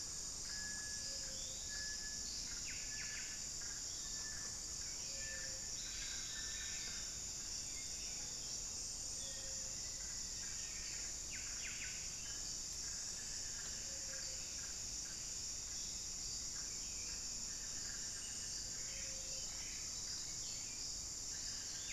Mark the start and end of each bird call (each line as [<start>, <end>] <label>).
[0.00, 7.11] Little Tinamou (Crypturellus soui)
[0.00, 21.92] Buff-breasted Wren (Cantorchilus leucotis)
[0.00, 21.92] Ruddy Quail-Dove (Geotrygon montana)
[1.21, 1.91] Forest Elaenia (Myiopagis gaimardii)
[3.71, 4.21] Forest Elaenia (Myiopagis gaimardii)
[5.81, 7.01] unidentified bird
[9.11, 9.51] Hauxwell's Thrush (Turdus hauxwelli)
[9.21, 11.01] Black-faced Antthrush (Formicarius analis)
[12.11, 20.01] unidentified bird
[13.71, 21.92] Hauxwell's Thrush (Turdus hauxwelli)